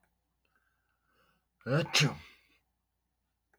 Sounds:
Sneeze